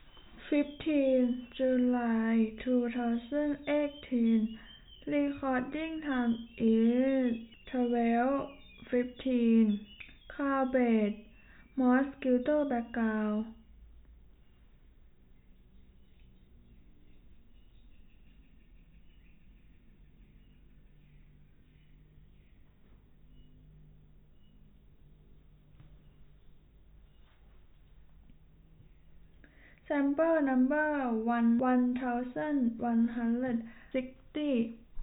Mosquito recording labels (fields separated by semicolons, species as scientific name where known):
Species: no mosquito; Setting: cup